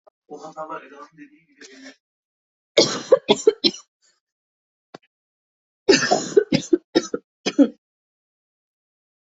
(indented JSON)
{
  "expert_labels": [
    {
      "quality": "ok",
      "cough_type": "dry",
      "dyspnea": false,
      "wheezing": false,
      "stridor": false,
      "choking": false,
      "congestion": false,
      "nothing": true,
      "diagnosis": "lower respiratory tract infection",
      "severity": "mild"
    }
  ],
  "age": 40,
  "gender": "female",
  "respiratory_condition": false,
  "fever_muscle_pain": false,
  "status": "symptomatic"
}